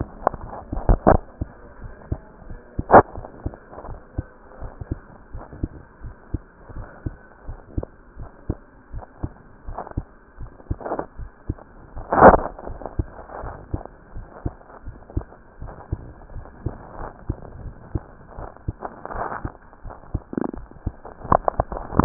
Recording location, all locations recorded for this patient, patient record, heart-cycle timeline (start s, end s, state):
mitral valve (MV)
aortic valve (AV)+pulmonary valve (PV)+tricuspid valve (TV)+mitral valve (MV)
#Age: Child
#Sex: Male
#Height: 141.0 cm
#Weight: 30.7 kg
#Pregnancy status: False
#Murmur: Absent
#Murmur locations: nan
#Most audible location: nan
#Systolic murmur timing: nan
#Systolic murmur shape: nan
#Systolic murmur grading: nan
#Systolic murmur pitch: nan
#Systolic murmur quality: nan
#Diastolic murmur timing: nan
#Diastolic murmur shape: nan
#Diastolic murmur grading: nan
#Diastolic murmur pitch: nan
#Diastolic murmur quality: nan
#Outcome: Normal
#Campaign: 2015 screening campaign
0.00	4.58	unannotated
4.58	4.72	S1
4.72	4.88	systole
4.88	5.00	S2
5.00	5.32	diastole
5.32	5.44	S1
5.44	5.60	systole
5.60	5.72	S2
5.72	6.04	diastole
6.04	6.14	S1
6.14	6.31	systole
6.31	6.40	S2
6.40	6.76	diastole
6.76	6.86	S1
6.86	7.04	systole
7.04	7.16	S2
7.16	7.45	diastole
7.45	7.58	S1
7.58	7.74	systole
7.74	7.86	S2
7.86	8.16	diastole
8.16	8.31	S1
8.31	8.46	systole
8.46	8.58	S2
8.58	8.91	diastole
8.91	9.04	S1
9.04	9.19	systole
9.19	9.32	S2
9.32	9.65	diastole
9.65	9.78	S1
9.78	9.94	systole
9.94	10.08	S2
10.08	10.36	diastole
10.36	10.50	S1
10.50	10.66	systole
10.66	10.80	S2
10.80	11.16	diastole
11.16	11.29	S1
11.29	11.45	systole
11.45	11.56	S2
11.56	11.94	diastole
11.94	12.06	S1
12.06	22.05	unannotated